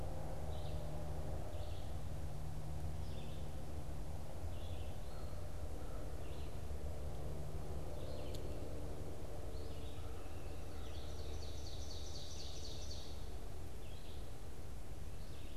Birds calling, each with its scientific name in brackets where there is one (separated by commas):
Ovenbird (Seiurus aurocapilla), American Crow (Corvus brachyrhynchos), Red-eyed Vireo (Vireo olivaceus)